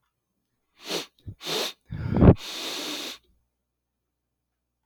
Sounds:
Sniff